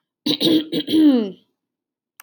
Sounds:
Throat clearing